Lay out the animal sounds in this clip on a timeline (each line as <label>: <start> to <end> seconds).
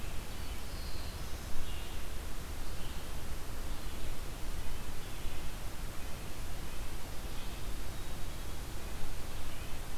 Red-eyed Vireo (Vireo olivaceus): 0.0 to 10.0 seconds
Black-throated Blue Warbler (Setophaga caerulescens): 0.1 to 1.6 seconds
Red-breasted Nuthatch (Sitta canadensis): 5.1 to 9.9 seconds